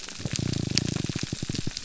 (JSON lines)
{"label": "biophony", "recorder": "SoundTrap 300"}